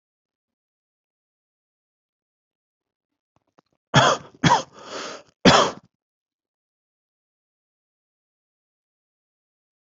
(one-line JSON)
{"expert_labels": [{"quality": "good", "cough_type": "dry", "dyspnea": false, "wheezing": false, "stridor": false, "choking": false, "congestion": false, "nothing": true, "diagnosis": "healthy cough", "severity": "pseudocough/healthy cough"}], "age": 27, "gender": "male", "respiratory_condition": false, "fever_muscle_pain": false, "status": "COVID-19"}